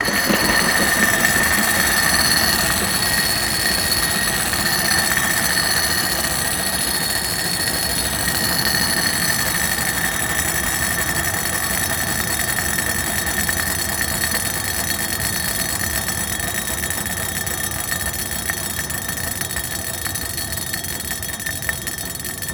Has something been shaken?
yes